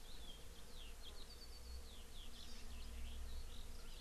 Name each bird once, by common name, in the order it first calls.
Hawaii Amakihi, Eurasian Skylark